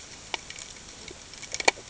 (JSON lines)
{"label": "ambient", "recorder": "HydroMoth"}